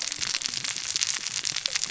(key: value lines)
label: biophony, cascading saw
recorder: SoundTrap 600 or HydroMoth